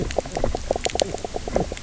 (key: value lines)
label: biophony, knock croak
recorder: SoundTrap 300